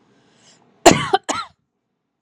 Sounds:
Cough